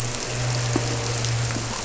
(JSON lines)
{"label": "anthrophony, boat engine", "recorder": "SoundTrap 300"}